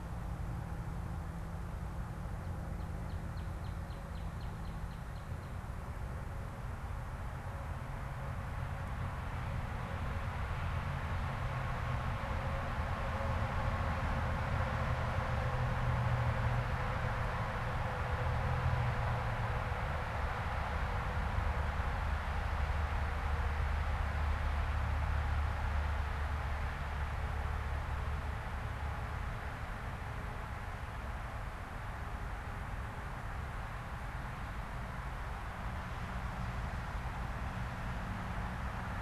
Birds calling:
Northern Cardinal (Cardinalis cardinalis)

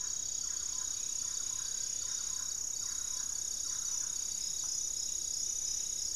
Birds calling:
unidentified bird
Thrush-like Wren (Campylorhynchus turdinus)

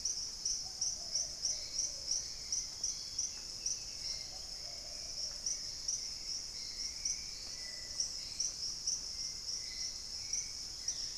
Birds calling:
Dusky-capped Greenlet (Pachysylvia hypoxantha)
Plumbeous Pigeon (Patagioenas plumbea)
Black-faced Antthrush (Formicarius analis)
Hauxwell's Thrush (Turdus hauxwelli)
Thrush-like Wren (Campylorhynchus turdinus)
Black-capped Becard (Pachyramphus marginatus)

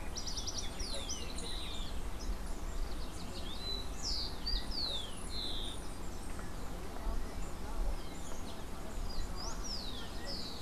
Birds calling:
Rufous-collared Sparrow (Zonotrichia capensis)

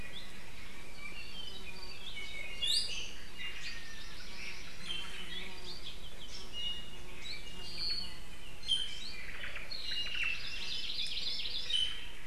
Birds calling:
Hawaii Amakihi (Chlorodrepanis virens)
Iiwi (Drepanis coccinea)
Apapane (Himatione sanguinea)
Omao (Myadestes obscurus)

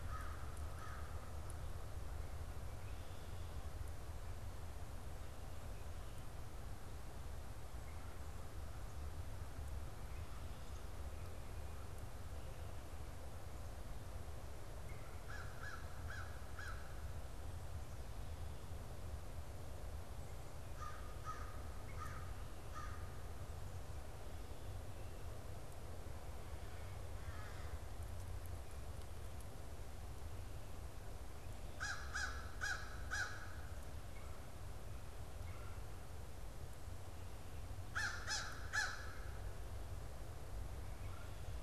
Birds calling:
Red-bellied Woodpecker (Melanerpes carolinus)
American Crow (Corvus brachyrhynchos)

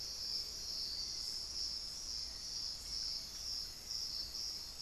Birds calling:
unidentified bird
Hauxwell's Thrush (Turdus hauxwelli)

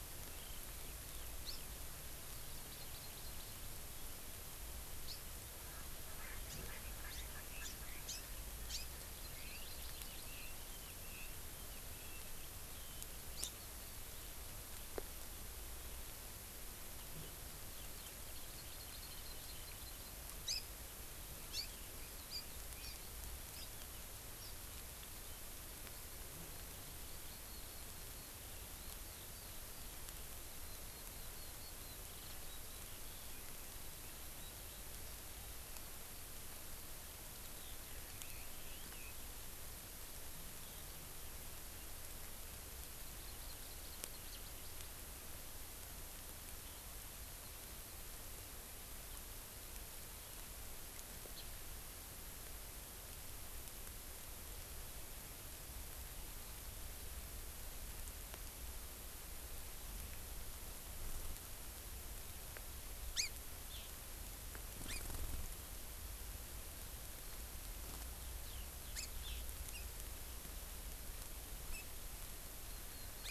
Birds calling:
Erckel's Francolin (Pternistis erckelii)
Hawaii Amakihi (Chlorodrepanis virens)
Red-billed Leiothrix (Leiothrix lutea)
House Finch (Haemorhous mexicanus)

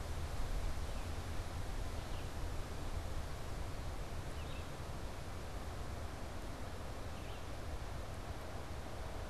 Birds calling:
Red-eyed Vireo (Vireo olivaceus)

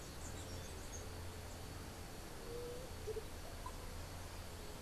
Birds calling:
White-tipped Dove (Leptotila verreauxi)
Andean Motmot (Momotus aequatorialis)
unidentified bird

